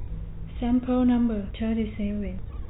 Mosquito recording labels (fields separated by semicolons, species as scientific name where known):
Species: no mosquito; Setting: cup